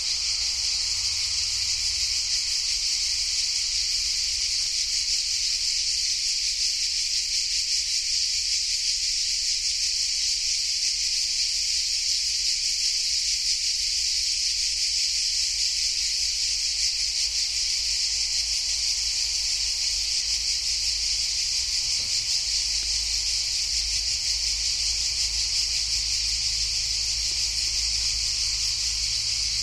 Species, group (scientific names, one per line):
Cicada orni
Cicadidae